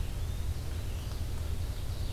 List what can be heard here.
Yellow-bellied Flycatcher, Red-eyed Vireo